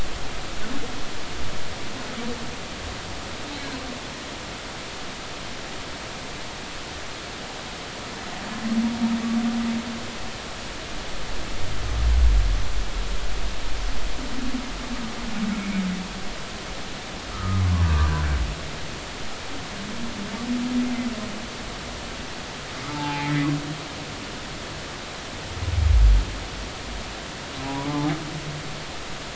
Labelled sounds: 17.3	17.6	humpback whale, 1.2 to 1.4 kHz
22.9	23.5	humpback whale, 0.80 to 2.4 kHz
27.6	28.1	humpback whale, 0.80 to 1.0 kHz

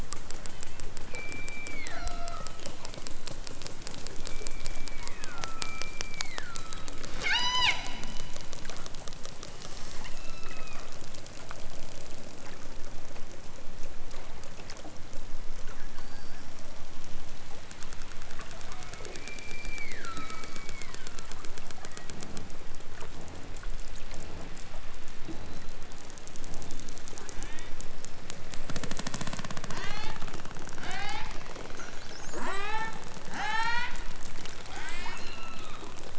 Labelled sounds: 0.4	2.6	killer whale, southern Alaska resident, 0.46 to 6.1 kHz
4.2	7.8	killer whale, southern Alaska resident, 0.41 to 8.0 kHz
9.5	10.9	killer whale, southern Alaska resident, 0.87 to 8.0 kHz
18.6	21.4	killer whale, southern Alaska resident, 0.87 to 5.2 kHz
21.7	22.2	killer whale, southern Alaska resident, 1.3 to 3.6 kHz
27.2	27.8	killer whale, southern Alaska resident, 0.83 to 4.0 kHz
29.6	30.2	killer whale, southern Alaska resident, 0.41 to 8.0 kHz
30.8	31.4	killer whale, southern Alaska resident, 0.51 to 6.8 kHz
32.4	33.0	killer whale, southern Alaska resident, 0.18 to 6.2 kHz
33.4	34.0	killer whale, southern Alaska resident, 0.60 to 8.0 kHz
34.7	36.0	killer whale, southern Alaska resident, 0.51 to 8.0 kHz

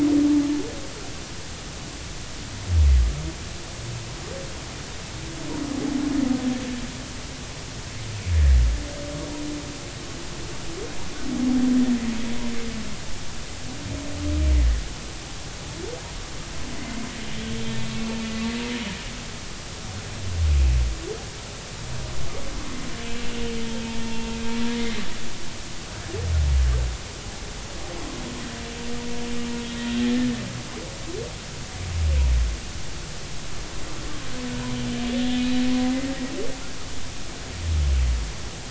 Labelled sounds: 17.7	18.1	humpback whale, 1.9 to 2.2 kHz
24.0	24.3	humpback whale, 0.86 to 2.8 kHz
24.7	25.0	humpback whale, 2.0 to 2.2 kHz
30.0	30.3	humpback whale, 1.7 to 1.9 kHz

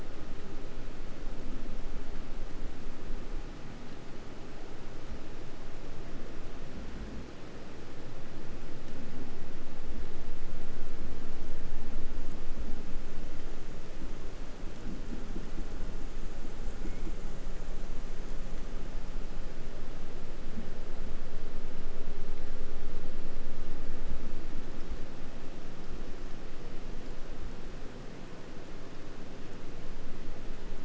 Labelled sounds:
16.7	17.4	killer whale, southern resident, 0.57 to 2.8 kHz

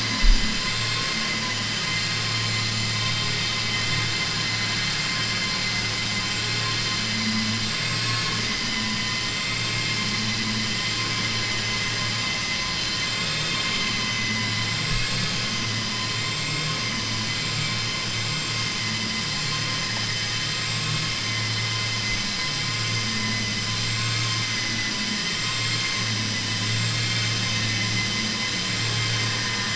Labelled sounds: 25.4	25.9	vessel noise, 1.3 to 4.3 kHz

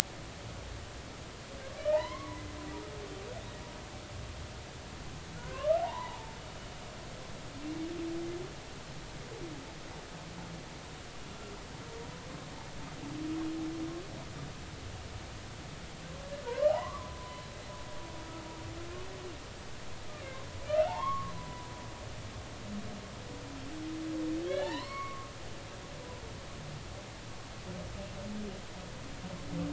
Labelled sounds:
1.8	2.4	humpback whale, 0.80 to 2.5 kHz
5.4	6.4	humpback whale, 0.80 to 2.1 kHz
16.5	17.4	humpback whale, 0.80 to 3.0 kHz
20.7	21.7	humpback whale, 0.80 to 2.2 kHz
24.5	25.3	humpback whale, 0.80 to 3.1 kHz

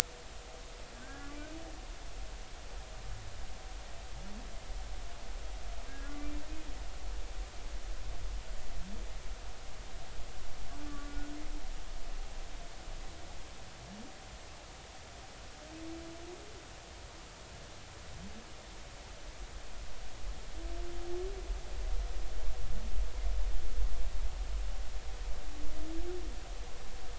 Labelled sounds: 1.1	1.6	humpback whale, 1.3 to 2.6 kHz
2.0	2.3	humpback whale, 1.5 to 1.8 kHz
5.9	6.1	humpback whale, 1.6 to 1.7 kHz
10.9	11.3	humpback whale, 1.1 to 1.6 kHz

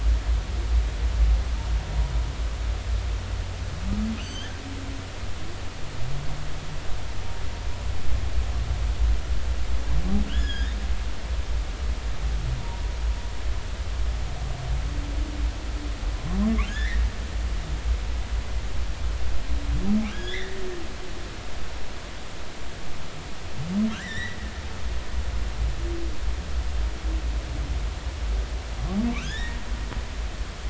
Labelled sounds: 4.2	4.5	humpback whale, 2.7 to 6.5 kHz
10.3	10.7	humpback whale, 1.3 to 5.2 kHz
12.6	12.8	humpback whale, 0.86 to 1.0 kHz
16.7	17.0	humpback whale, 1.5 to 2.3 kHz
20.1	20.6	humpback whale, 1.4 to 3.9 kHz
23.9	24.4	humpback whale, 1.3 to 5.9 kHz
29.2	29.6	humpback whale, 1.5 to 3.9 kHz

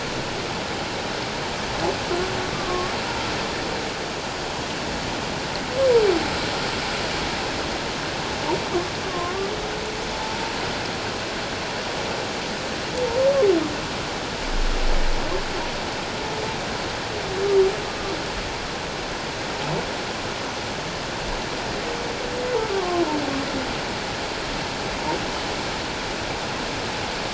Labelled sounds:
2.5	2.9	humpback whale, 1.0 to 1.2 kHz
9.0	9.5	humpback whale, 0.94 to 1.2 kHz
10.1	10.4	humpback whale, 0.84 to 0.94 kHz
22.7	23.0	humpback whale, 1.0 to 1.2 kHz

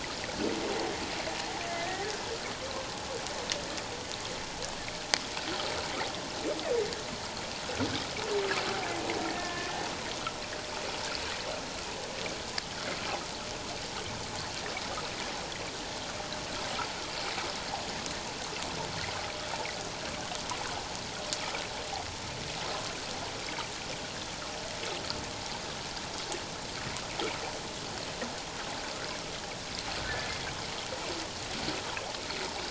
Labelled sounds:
1.7	2.1	humpback whale, 1.7 to 2.1 kHz
9.3	9.7	humpback whale, 1.0 to 1.9 kHz

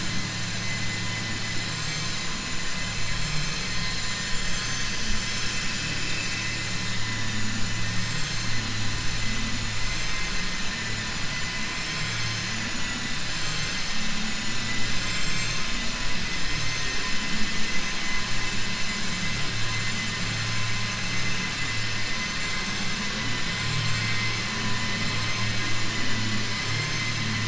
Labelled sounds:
1.6	2.1	vessel noise, 5.5 to 7.9 kHz
9.9	10.3	vessel noise, 1.2 to 3.6 kHz
13.2	14.1	vessel noise, 5.2 to 7.7 kHz

